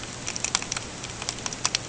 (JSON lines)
{"label": "ambient", "recorder": "HydroMoth"}